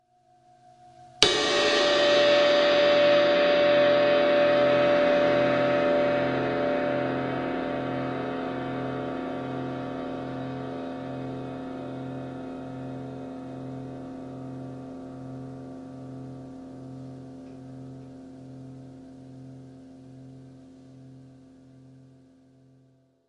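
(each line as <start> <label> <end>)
1.2 A smooth, swelling cymbal sound that builds and fades with a swooshing effect. 23.1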